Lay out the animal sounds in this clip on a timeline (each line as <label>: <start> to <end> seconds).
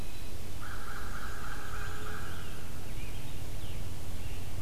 Black-throated Green Warbler (Setophaga virens): 0.0 to 0.5 seconds
Red-eyed Vireo (Vireo olivaceus): 0.0 to 4.6 seconds
Scarlet Tanager (Piranga olivacea): 0.4 to 4.5 seconds
American Crow (Corvus brachyrhynchos): 0.5 to 3.3 seconds